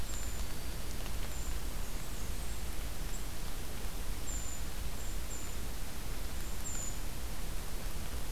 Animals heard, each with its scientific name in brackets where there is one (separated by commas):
Brown Creeper (Certhia americana), Black-throated Green Warbler (Setophaga virens), Black-and-white Warbler (Mniotilta varia)